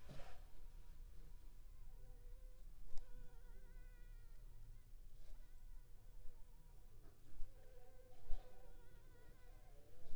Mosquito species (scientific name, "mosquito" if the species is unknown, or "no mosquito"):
Anopheles funestus s.l.